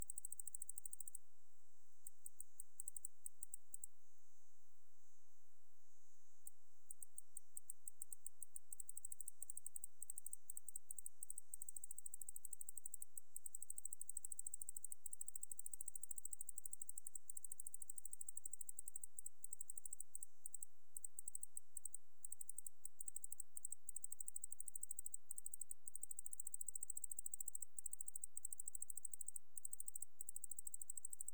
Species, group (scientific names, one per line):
Decticus albifrons
Orthoptera